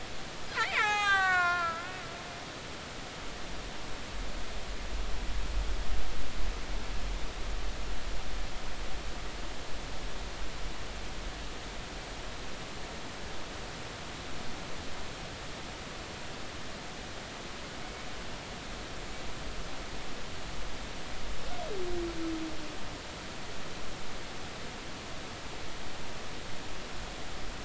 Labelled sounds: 0.6	1.9	killer whale, Bigg's (transient), 0.80 to 8.0 kHz

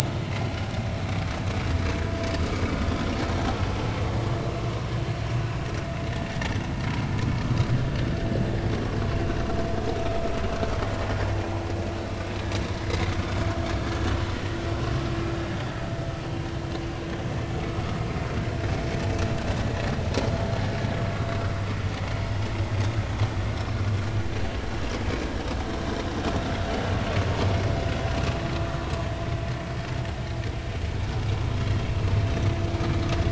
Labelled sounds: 12.8	13.1	vessel noise, 1.9 to 2.2 kHz

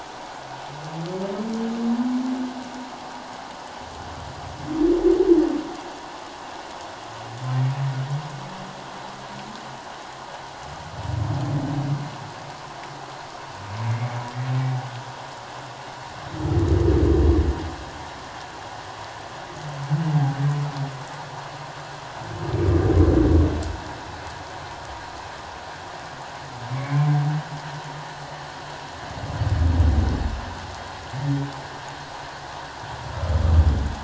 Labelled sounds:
13.9	14.2	humpback whale, 2.0 to 2.3 kHz
26.7	27.1	humpback whale, 2.0 to 2.4 kHz

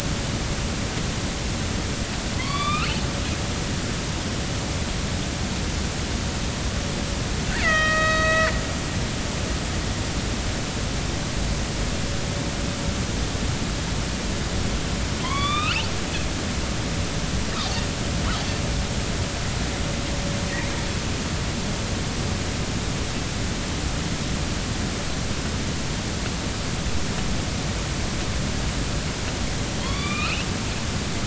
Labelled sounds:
2.4	2.9	killer whale, northern resident, A clan, AB subclan, call N16, 0.96 to 4.7 kHz
7.6	8.5	killer whale, northern resident, A clan, AB subclan, B01 pod, call N01ii, 1.2 to 5.8 kHz
15.2	15.9	killer whale, northern resident, A clan, AB subclan, call N16, 0.93 to 3.8 kHz
29.8	30.5	killer whale, northern resident, A clan, AB subclan, call N16, 0.93 to 3.9 kHz

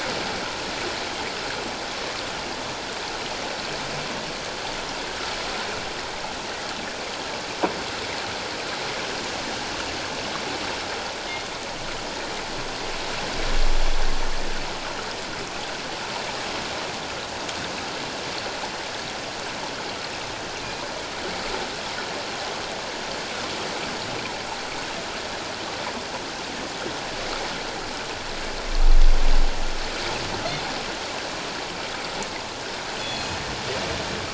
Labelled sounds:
33.0	33.4	killer whale, northern resident, G clan, call N24ii, 2.5 to 6.9 kHz

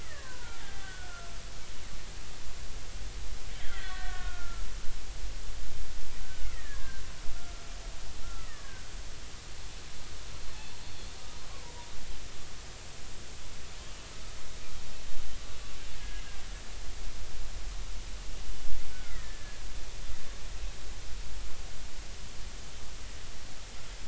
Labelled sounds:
0.0	1.3	killer whale, Bigg's (transient), 0.80 to 2.1 kHz
3.5	4.6	killer whale, Bigg's (transient), 1.1 to 4.3 kHz
6.2	7.0	killer whale, Bigg's (transient), 1.2 to 2.2 kHz
8.2	8.9	killer whale, Bigg's (transient), 1.1 to 2.0 kHz
18.9	19.6	killer whale, Bigg's (transient), 1.2 to 2.2 kHz

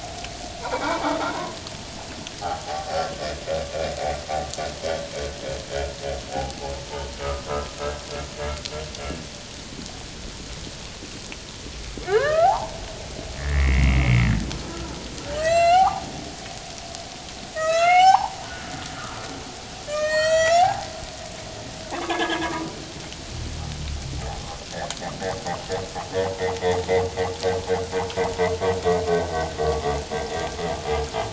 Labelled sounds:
0.6	1.2	humpback whale, 0.78 to 2.4 kHz
2.6	3.0	humpback whale, 0.78 to 0.88 kHz
6.3	6.8	humpback whale, 0.78 to 0.94 kHz
7.2	7.7	humpback whale, 0.94 to 1.4 kHz
12.1	12.8	humpback whale, 0.78 to 2.1 kHz
13.4	14.0	humpback whale, 1.6 to 2.3 kHz
15.2	16.0	humpback whale, 0.78 to 7.9 kHz
17.6	18.4	humpback whale, 0.78 to 7.4 kHz
19.9	20.9	humpback whale, 0.78 to 7.8 kHz
21.9	22.7	humpback whale, 0.78 to 1.8 kHz

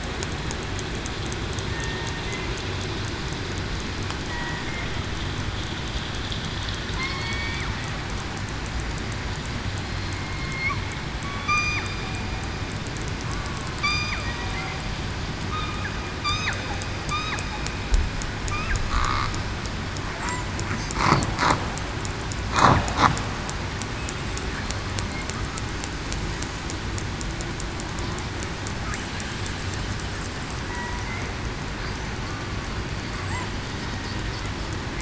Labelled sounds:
1.7	2.1	killer whale, southern resident, 1.8 to 1.9 kHz
4.3	4.6	killer whale, southern resident, 1.88 to 1.95 kHz
6.9	7.6	killer whale, southern resident, 1.8 to 4.6 kHz
10.1	10.8	killer whale, southern resident, 2.1 to 2.4 kHz
11.5	11.8	killer whale, southern resident, 1.1 to 3.7 kHz
13.8	14.1	killer whale, southern resident, 1.1 to 1.2 kHz
15.5	15.9	killer whale, southern resident, 1.2 to 1.3 kHz
30.7	31.0	killer whale, southern resident, 0.89 to 1.0 kHz

